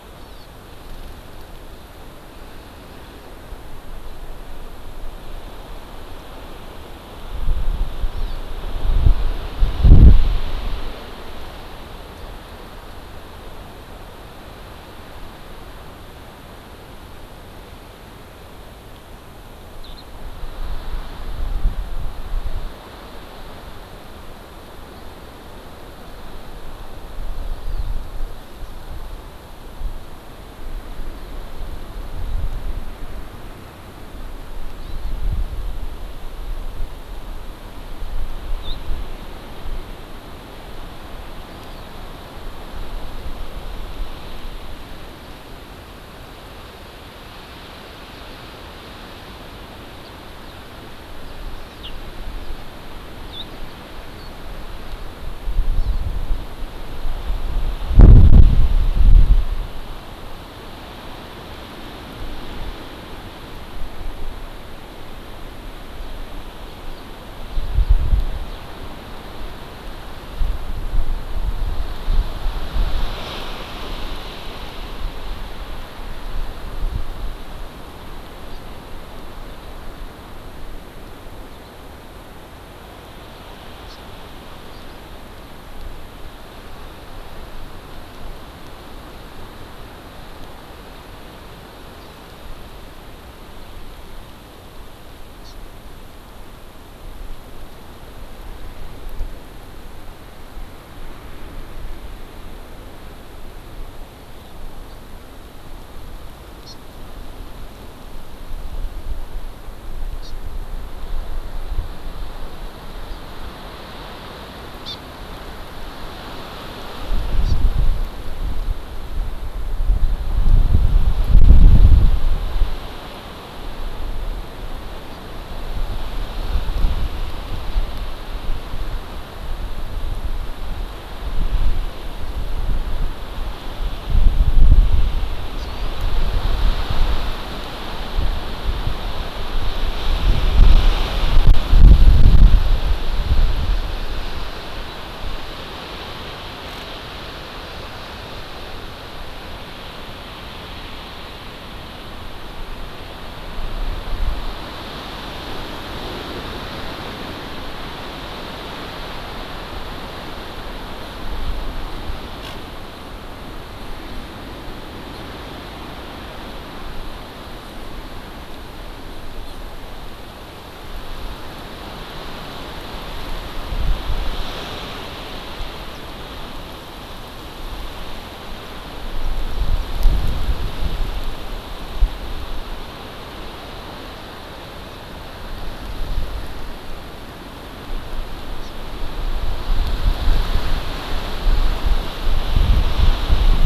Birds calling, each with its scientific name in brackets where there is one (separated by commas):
Eurasian Skylark (Alauda arvensis), House Finch (Haemorhous mexicanus), Hawaii Amakihi (Chlorodrepanis virens)